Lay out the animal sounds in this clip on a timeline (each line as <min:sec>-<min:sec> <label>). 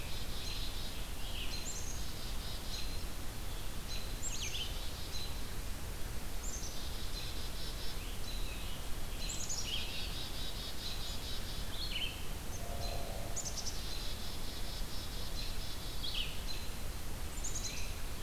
0:00.0-0:01.1 Black-capped Chickadee (Poecile atricapillus)
0:00.0-0:12.3 Red-eyed Vireo (Vireo olivaceus)
0:00.4-0:00.6 American Robin (Turdus migratorius)
0:01.5-0:03.0 Black-capped Chickadee (Poecile atricapillus)
0:02.6-0:05.2 American Robin (Turdus migratorius)
0:04.2-0:05.3 Black-capped Chickadee (Poecile atricapillus)
0:06.3-0:08.0 Black-capped Chickadee (Poecile atricapillus)
0:06.9-0:09.7 Scarlet Tanager (Piranga olivacea)
0:09.2-0:11.8 Black-capped Chickadee (Poecile atricapillus)
0:12.4-0:13.1 American Robin (Turdus migratorius)
0:13.1-0:16.2 Black-capped Chickadee (Poecile atricapillus)
0:15.3-0:18.2 Red-eyed Vireo (Vireo olivaceus)
0:16.4-0:18.2 American Robin (Turdus migratorius)
0:17.2-0:18.2 Black-capped Chickadee (Poecile atricapillus)